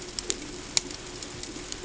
{"label": "ambient", "recorder": "HydroMoth"}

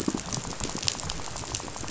{"label": "biophony, rattle", "recorder": "SoundTrap 500"}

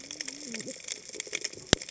{"label": "biophony, cascading saw", "recorder": "HydroMoth"}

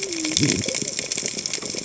{"label": "biophony, cascading saw", "recorder": "HydroMoth"}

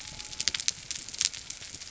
{"label": "biophony", "recorder": "SoundTrap 300"}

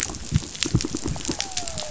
{"label": "biophony", "recorder": "SoundTrap 500"}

